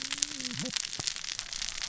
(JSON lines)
{"label": "biophony, cascading saw", "recorder": "SoundTrap 600 or HydroMoth"}